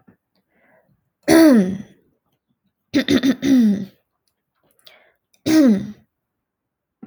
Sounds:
Throat clearing